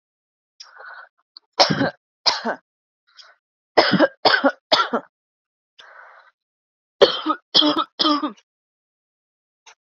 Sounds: Cough